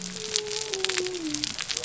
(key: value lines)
label: biophony
recorder: SoundTrap 300